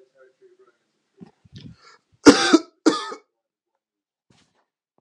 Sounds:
Cough